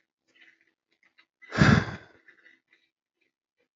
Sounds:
Sigh